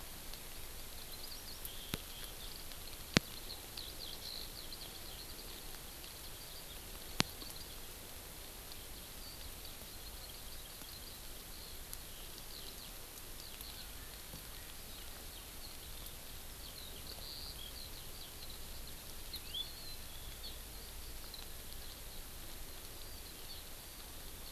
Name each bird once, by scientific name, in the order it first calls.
Alauda arvensis, Chlorodrepanis virens